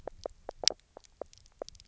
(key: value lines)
label: biophony, knock croak
recorder: SoundTrap 300